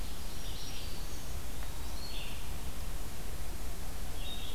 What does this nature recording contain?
Ovenbird, Black-throated Green Warbler, Red-eyed Vireo, Eastern Wood-Pewee